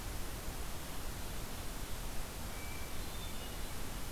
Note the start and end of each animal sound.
2.5s-3.8s: Hermit Thrush (Catharus guttatus)

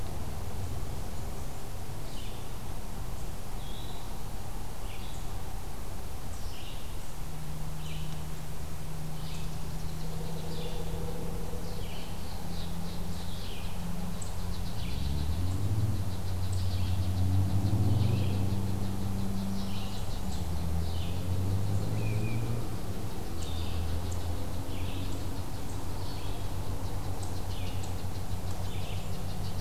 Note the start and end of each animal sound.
2.0s-21.3s: Red-eyed Vireo (Vireo olivaceus)
3.4s-4.5s: Eastern Wood-Pewee (Contopus virens)
9.4s-10.9s: unknown mammal
11.4s-29.6s: unknown mammal
21.9s-22.5s: unidentified call
23.3s-29.6s: Red-eyed Vireo (Vireo olivaceus)

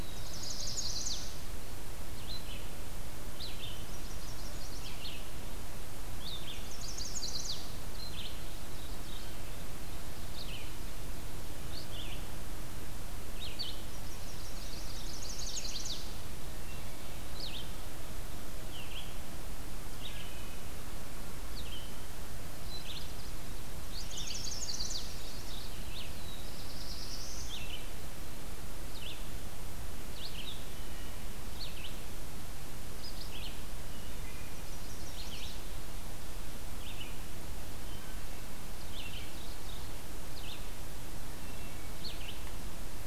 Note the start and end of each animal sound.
0.0s-1.4s: Chestnut-sided Warbler (Setophaga pensylvanica)
0.0s-1.4s: Black-throated Blue Warbler (Setophaga caerulescens)
0.0s-43.1s: Red-eyed Vireo (Vireo olivaceus)
3.7s-5.3s: Chestnut-sided Warbler (Setophaga pensylvanica)
6.3s-7.8s: Chestnut-sided Warbler (Setophaga pensylvanica)
8.2s-9.5s: Chestnut-sided Warbler (Setophaga pensylvanica)
13.9s-16.2s: Chestnut-sided Warbler (Setophaga pensylvanica)
16.2s-17.5s: Wood Thrush (Hylocichla mustelina)
19.7s-20.8s: Wood Thrush (Hylocichla mustelina)
22.4s-25.8s: Chestnut-sided Warbler (Setophaga pensylvanica)
26.2s-27.7s: Black-throated Blue Warbler (Setophaga caerulescens)
30.6s-31.4s: Wood Thrush (Hylocichla mustelina)
33.7s-34.5s: Wood Thrush (Hylocichla mustelina)
34.4s-35.8s: Chestnut-sided Warbler (Setophaga pensylvanica)
37.7s-38.6s: Wood Thrush (Hylocichla mustelina)
38.7s-40.0s: Ovenbird (Seiurus aurocapilla)
41.3s-42.4s: Wood Thrush (Hylocichla mustelina)

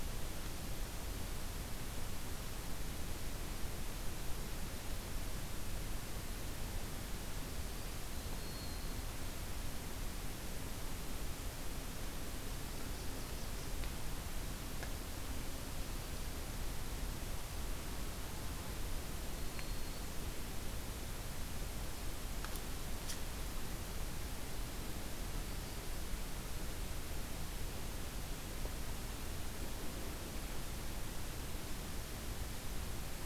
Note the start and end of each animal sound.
8.0s-9.2s: Black-throated Green Warbler (Setophaga virens)
12.3s-13.8s: Ovenbird (Seiurus aurocapilla)
19.1s-20.2s: Black-throated Green Warbler (Setophaga virens)

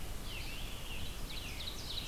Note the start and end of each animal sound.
0.0s-1.7s: Scarlet Tanager (Piranga olivacea)
0.0s-2.1s: Red-eyed Vireo (Vireo olivaceus)
1.1s-2.1s: Ovenbird (Seiurus aurocapilla)

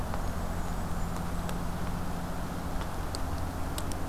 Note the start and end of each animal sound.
0.0s-1.6s: Blackburnian Warbler (Setophaga fusca)

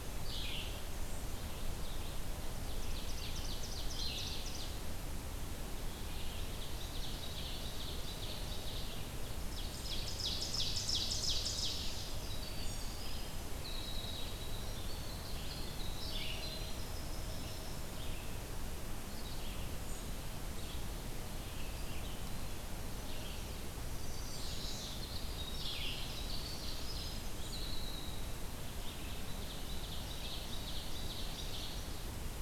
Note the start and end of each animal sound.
0.0s-31.9s: Red-eyed Vireo (Vireo olivaceus)
2.6s-5.0s: Ovenbird (Seiurus aurocapilla)
5.8s-12.1s: Ovenbird (Seiurus aurocapilla)
12.1s-17.8s: Winter Wren (Troglodytes hiemalis)
23.6s-28.6s: Winter Wren (Troglodytes hiemalis)
24.1s-25.0s: Chestnut-sided Warbler (Setophaga pensylvanica)
25.6s-27.4s: Ovenbird (Seiurus aurocapilla)
28.8s-32.1s: Ovenbird (Seiurus aurocapilla)

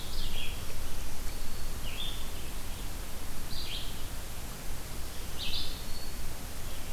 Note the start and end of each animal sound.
0.0s-6.9s: Red-eyed Vireo (Vireo olivaceus)
0.7s-1.9s: Black-throated Green Warbler (Setophaga virens)
5.0s-6.3s: Black-throated Green Warbler (Setophaga virens)

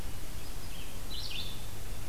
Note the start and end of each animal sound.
0.0s-1.6s: Red-eyed Vireo (Vireo olivaceus)

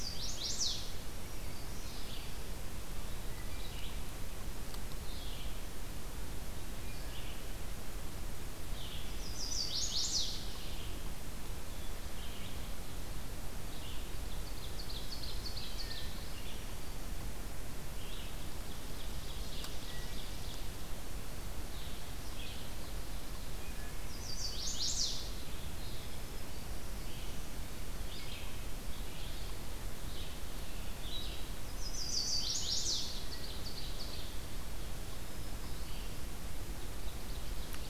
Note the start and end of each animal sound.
0.0s-1.0s: Chestnut-sided Warbler (Setophaga pensylvanica)
0.0s-9.2s: Red-eyed Vireo (Vireo olivaceus)
8.9s-10.4s: Chestnut-sided Warbler (Setophaga pensylvanica)
10.4s-37.9s: Red-eyed Vireo (Vireo olivaceus)
14.2s-16.4s: Ovenbird (Seiurus aurocapilla)
17.7s-20.8s: Ovenbird (Seiurus aurocapilla)
23.6s-24.2s: Wood Thrush (Hylocichla mustelina)
24.0s-25.3s: Chestnut-sided Warbler (Setophaga pensylvanica)
31.4s-33.3s: Chestnut-sided Warbler (Setophaga pensylvanica)
33.3s-34.5s: Ovenbird (Seiurus aurocapilla)
35.1s-36.2s: Black-throated Green Warbler (Setophaga virens)
36.8s-37.9s: Ovenbird (Seiurus aurocapilla)

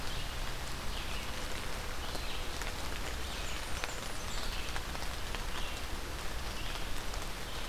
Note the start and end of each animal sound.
0.0s-7.7s: Red-eyed Vireo (Vireo olivaceus)
2.9s-4.5s: Blackburnian Warbler (Setophaga fusca)

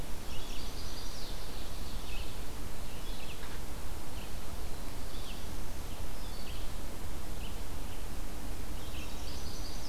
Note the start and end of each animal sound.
0.0s-9.9s: Red-eyed Vireo (Vireo olivaceus)
0.3s-1.4s: Chestnut-sided Warbler (Setophaga pensylvanica)
8.9s-9.9s: Chestnut-sided Warbler (Setophaga pensylvanica)

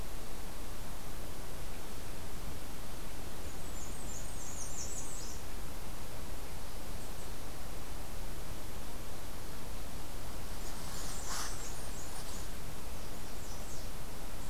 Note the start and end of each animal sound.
3.5s-5.3s: Blackburnian Warbler (Setophaga fusca)
10.6s-12.5s: Blackburnian Warbler (Setophaga fusca)
12.7s-13.9s: American Redstart (Setophaga ruticilla)

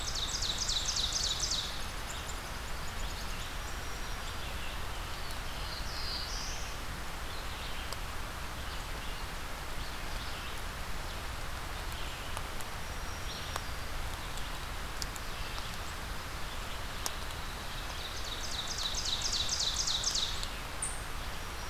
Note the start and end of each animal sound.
0.0s-0.9s: unidentified call
0.0s-1.9s: Ovenbird (Seiurus aurocapilla)
0.0s-21.7s: Red-eyed Vireo (Vireo olivaceus)
3.5s-4.7s: Black-throated Green Warbler (Setophaga virens)
5.0s-7.0s: Black-throated Blue Warbler (Setophaga caerulescens)
12.8s-13.9s: Black-throated Green Warbler (Setophaga virens)
17.7s-20.4s: Ovenbird (Seiurus aurocapilla)
20.7s-21.0s: unidentified call

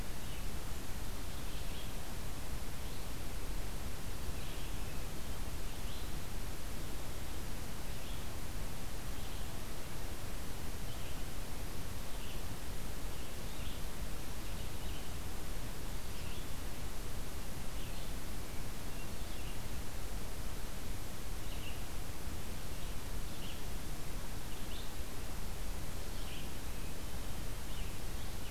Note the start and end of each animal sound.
0.0s-28.5s: Red-eyed Vireo (Vireo olivaceus)

